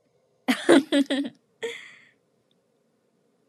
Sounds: Laughter